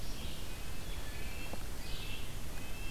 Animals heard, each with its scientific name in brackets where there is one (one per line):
Red-breasted Nuthatch (Sitta canadensis)